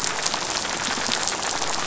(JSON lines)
{"label": "biophony, rattle", "recorder": "SoundTrap 500"}